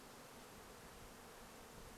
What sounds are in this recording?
Red-breasted Nuthatch song, insect buzz